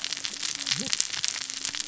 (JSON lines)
{"label": "biophony, cascading saw", "recorder": "SoundTrap 600 or HydroMoth"}